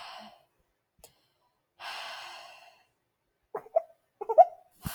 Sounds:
Sigh